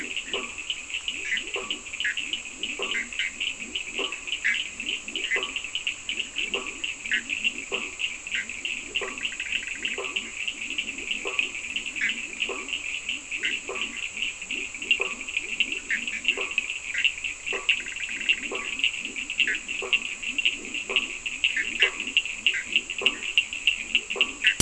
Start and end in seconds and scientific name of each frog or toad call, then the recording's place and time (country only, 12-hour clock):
0.0	22.8	Boana bischoffi
0.0	24.6	Boana faber
0.0	24.6	Leptodactylus latrans
0.0	24.6	Sphaenorhynchus surdus
Brazil, 4:00am